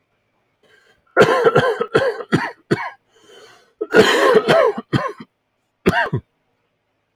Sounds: Cough